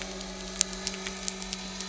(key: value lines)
label: anthrophony, boat engine
recorder: SoundTrap 300